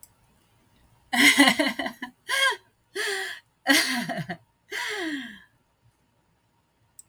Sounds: Laughter